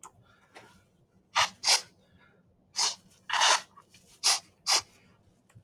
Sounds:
Sniff